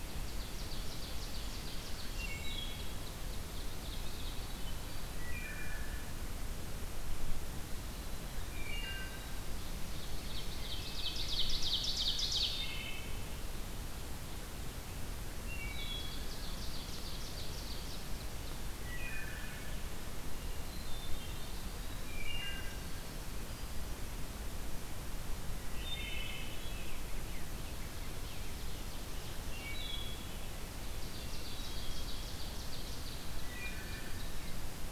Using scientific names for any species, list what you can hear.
Seiurus aurocapilla, Hylocichla mustelina, Bombycilla cedrorum, Catharus guttatus, Troglodytes hiemalis, Pheucticus ludovicianus